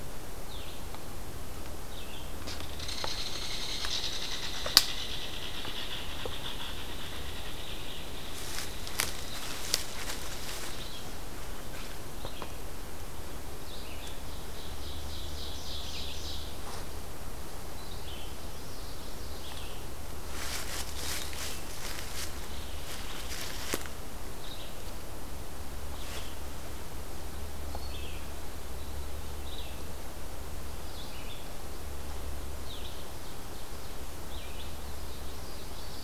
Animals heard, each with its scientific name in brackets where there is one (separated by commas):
Belted Kingfisher (Megaceryle alcyon), Common Yellowthroat (Geothlypis trichas), Ovenbird (Seiurus aurocapilla), Red-eyed Vireo (Vireo olivaceus)